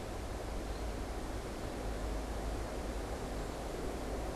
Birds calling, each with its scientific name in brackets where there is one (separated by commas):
American Goldfinch (Spinus tristis)